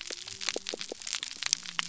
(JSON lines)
{"label": "biophony", "recorder": "SoundTrap 300"}